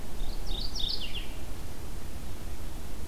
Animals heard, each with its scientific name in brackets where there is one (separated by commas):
Mourning Warbler (Geothlypis philadelphia)